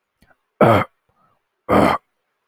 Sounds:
Throat clearing